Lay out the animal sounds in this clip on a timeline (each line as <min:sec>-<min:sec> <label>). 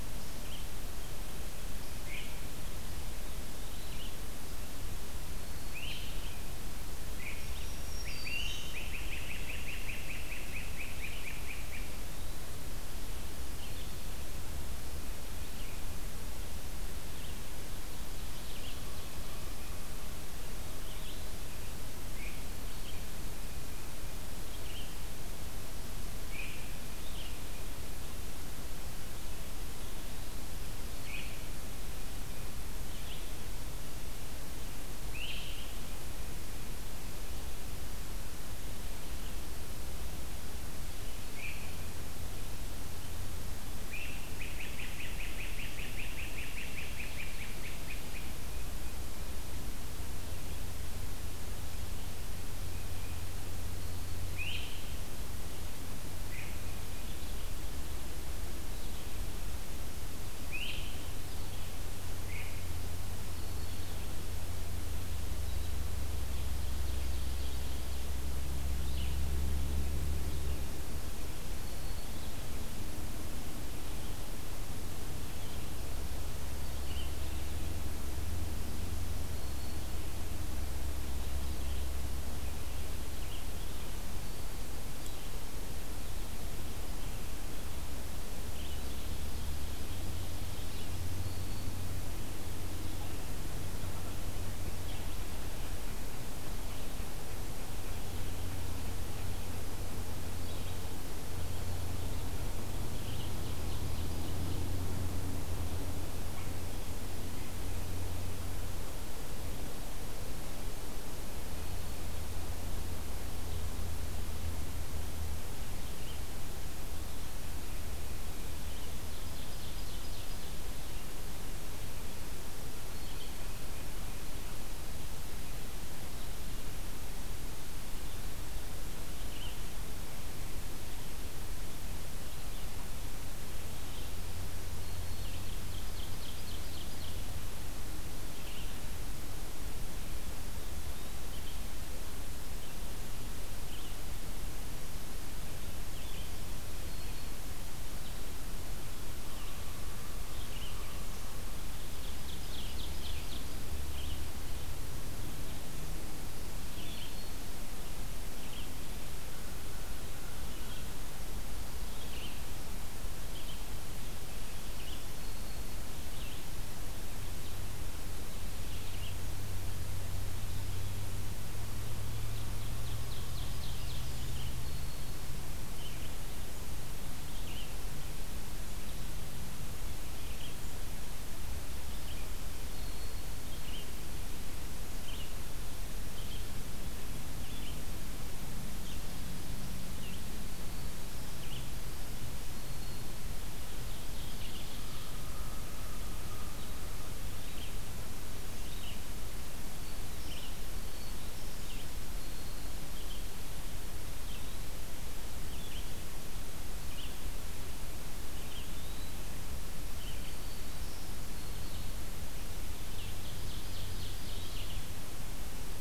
0:00.0-0:22.5 Red-eyed Vireo (Vireo olivaceus)
0:05.7-0:06.0 Great Crested Flycatcher (Myiarchus crinitus)
0:07.0-0:09.1 Black-throated Green Warbler (Setophaga virens)
0:08.0-0:12.3 Great Crested Flycatcher (Myiarchus crinitus)
0:22.8-0:33.4 Red-eyed Vireo (Vireo olivaceus)
0:26.1-0:26.6 Great Crested Flycatcher (Myiarchus crinitus)
0:35.1-0:35.7 Great Crested Flycatcher (Myiarchus crinitus)
0:41.3-0:41.6 Great Crested Flycatcher (Myiarchus crinitus)
0:43.9-0:48.4 Great Crested Flycatcher (Myiarchus crinitus)
0:54.3-0:54.8 Great Crested Flycatcher (Myiarchus crinitus)
0:56.2-0:56.7 Great Crested Flycatcher (Myiarchus crinitus)
1:00.3-1:00.8 Great Crested Flycatcher (Myiarchus crinitus)
1:02.2-1:02.6 Great Crested Flycatcher (Myiarchus crinitus)
1:03.2-1:04.2 Black-throated Green Warbler (Setophaga virens)
1:08.6-1:17.3 Red-eyed Vireo (Vireo olivaceus)
1:11.4-1:12.2 Black-throated Green Warbler (Setophaga virens)
1:19.2-1:20.1 Black-throated Green Warbler (Setophaga virens)
1:21.4-2:06.5 Red-eyed Vireo (Vireo olivaceus)
1:29.0-1:30.8 Ovenbird (Seiurus aurocapilla)
1:30.9-1:31.8 Black-throated Green Warbler (Setophaga virens)
1:43.0-1:44.7 Ovenbird (Seiurus aurocapilla)
1:58.9-2:00.7 Ovenbird (Seiurus aurocapilla)
2:08.5-3:07.6 Red-eyed Vireo (Vireo olivaceus)
2:14.7-2:17.6 Ovenbird (Seiurus aurocapilla)
2:31.6-2:33.8 Ovenbird (Seiurus aurocapilla)
2:36.6-2:37.7 Black-throated Green Warbler (Setophaga virens)
2:52.4-2:54.8 Ovenbird (Seiurus aurocapilla)
2:54.5-2:55.3 Black-throated Green Warbler (Setophaga virens)
3:08.6-3:35.8 Red-eyed Vireo (Vireo olivaceus)
3:13.4-3:15.6 Ovenbird (Seiurus aurocapilla)
3:28.2-3:29.2 Eastern Wood-Pewee (Contopus virens)
3:32.6-3:35.0 Ovenbird (Seiurus aurocapilla)